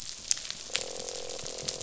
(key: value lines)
label: biophony, croak
recorder: SoundTrap 500